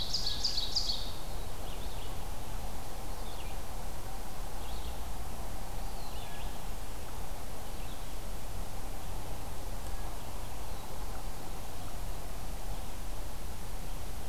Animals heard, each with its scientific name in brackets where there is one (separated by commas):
Eastern Wood-Pewee (Contopus virens), Red-eyed Vireo (Vireo olivaceus), Ovenbird (Seiurus aurocapilla)